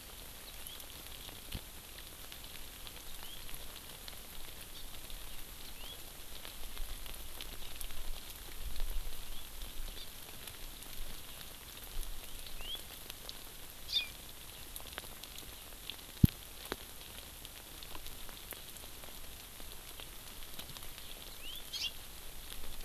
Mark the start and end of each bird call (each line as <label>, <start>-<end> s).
House Finch (Haemorhous mexicanus), 0.5-0.8 s
House Finch (Haemorhous mexicanus), 3.1-3.4 s
House Finch (Haemorhous mexicanus), 5.7-6.0 s
Hawaii Amakihi (Chlorodrepanis virens), 10.0-10.1 s
House Finch (Haemorhous mexicanus), 12.5-12.8 s
Hawaii Amakihi (Chlorodrepanis virens), 13.9-14.2 s
House Finch (Haemorhous mexicanus), 21.3-21.7 s
Hawaii Amakihi (Chlorodrepanis virens), 21.8-21.9 s